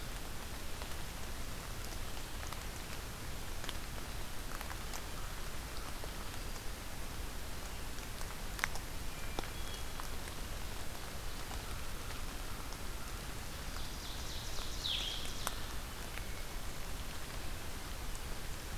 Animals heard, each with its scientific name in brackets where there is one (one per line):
Ovenbird (Seiurus aurocapilla)
Hermit Thrush (Catharus guttatus)
Blue-headed Vireo (Vireo solitarius)